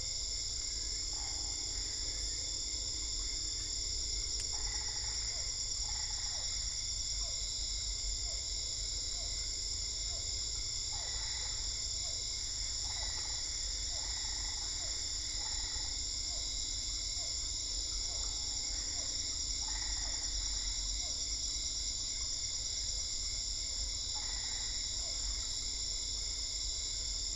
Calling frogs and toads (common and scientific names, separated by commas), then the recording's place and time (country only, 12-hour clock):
Usina tree frog (Boana lundii), Boana albopunctata, Physalaemus cuvieri
Brazil, 8:30pm